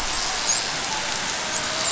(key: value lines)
label: biophony, dolphin
recorder: SoundTrap 500